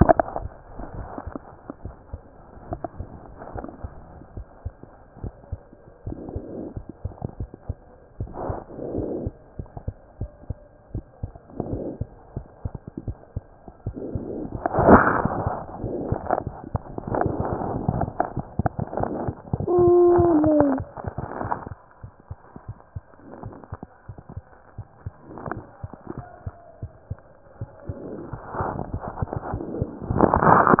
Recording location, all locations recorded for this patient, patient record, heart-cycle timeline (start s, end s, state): pulmonary valve (PV)
aortic valve (AV)+pulmonary valve (PV)
#Age: Child
#Sex: Female
#Height: 93.0 cm
#Weight: 13.0 kg
#Pregnancy status: False
#Murmur: Absent
#Murmur locations: nan
#Most audible location: nan
#Systolic murmur timing: nan
#Systolic murmur shape: nan
#Systolic murmur grading: nan
#Systolic murmur pitch: nan
#Systolic murmur quality: nan
#Diastolic murmur timing: nan
#Diastolic murmur shape: nan
#Diastolic murmur grading: nan
#Diastolic murmur pitch: nan
#Diastolic murmur quality: nan
#Outcome: Abnormal
#Campaign: 2014 screening campaign
0.00	1.84	unannotated
1.84	1.94	S1
1.94	2.12	systole
2.12	2.20	S2
2.20	2.70	diastole
2.70	2.80	S1
2.80	2.98	systole
2.98	3.08	S2
3.08	3.56	diastole
3.56	3.66	S1
3.66	3.83	systole
3.83	3.92	S2
3.92	4.36	diastole
4.36	4.46	S1
4.46	4.65	systole
4.65	4.74	S2
4.74	5.24	diastole
5.24	5.34	S1
5.34	5.51	systole
5.51	5.60	S2
5.60	6.06	diastole
6.06	30.80	unannotated